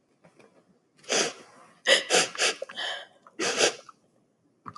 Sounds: Sniff